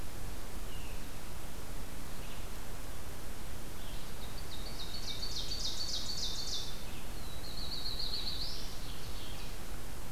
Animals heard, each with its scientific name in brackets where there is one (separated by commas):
Red-eyed Vireo (Vireo olivaceus), Ovenbird (Seiurus aurocapilla), Black-throated Blue Warbler (Setophaga caerulescens)